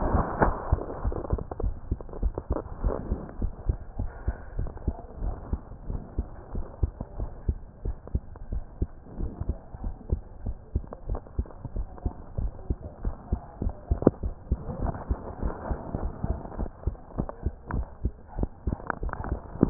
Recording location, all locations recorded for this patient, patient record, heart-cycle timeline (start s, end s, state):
mitral valve (MV)
aortic valve (AV)+pulmonary valve (PV)+tricuspid valve (TV)+mitral valve (MV)
#Age: Child
#Sex: Female
#Height: 115.0 cm
#Weight: 15.7 kg
#Pregnancy status: False
#Murmur: Absent
#Murmur locations: nan
#Most audible location: nan
#Systolic murmur timing: nan
#Systolic murmur shape: nan
#Systolic murmur grading: nan
#Systolic murmur pitch: nan
#Systolic murmur quality: nan
#Diastolic murmur timing: nan
#Diastolic murmur shape: nan
#Diastolic murmur grading: nan
#Diastolic murmur pitch: nan
#Diastolic murmur quality: nan
#Outcome: Normal
#Campaign: 2015 screening campaign
0.00	3.20	unannotated
3.20	3.40	diastole
3.40	3.54	S1
3.54	3.68	systole
3.68	3.80	S2
3.80	3.98	diastole
3.98	4.12	S1
4.12	4.26	systole
4.26	4.36	S2
4.36	4.56	diastole
4.56	4.70	S1
4.70	4.86	systole
4.86	4.98	S2
4.98	5.20	diastole
5.20	5.36	S1
5.36	5.50	systole
5.50	5.60	S2
5.60	5.86	diastole
5.86	6.02	S1
6.02	6.16	systole
6.16	6.28	S2
6.28	6.54	diastole
6.54	6.64	S1
6.64	6.82	systole
6.82	6.94	S2
6.94	7.18	diastole
7.18	7.30	S1
7.30	7.46	systole
7.46	7.60	S2
7.60	7.84	diastole
7.84	7.96	S1
7.96	8.12	systole
8.12	8.24	S2
8.24	8.50	diastole
8.50	8.64	S1
8.64	8.80	systole
8.80	8.92	S2
8.92	9.16	diastole
9.16	9.30	S1
9.30	9.48	systole
9.48	9.58	S2
9.58	9.82	diastole
9.82	9.94	S1
9.94	10.10	systole
10.10	10.22	S2
10.22	10.44	diastole
10.44	10.56	S1
10.56	10.74	systole
10.74	10.88	S2
10.88	11.08	diastole
11.08	11.20	S1
11.20	11.36	systole
11.36	11.46	S2
11.46	11.74	diastole
11.74	11.88	S1
11.88	12.04	systole
12.04	12.14	S2
12.14	12.36	diastole
12.36	12.52	S1
12.52	12.66	systole
12.66	12.78	S2
12.78	13.02	diastole
13.02	13.16	S1
13.16	13.30	systole
13.30	13.40	S2
13.40	13.60	diastole
13.60	13.74	S1
13.74	13.88	systole
13.88	19.70	unannotated